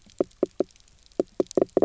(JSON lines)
{"label": "biophony, knock croak", "recorder": "SoundTrap 300"}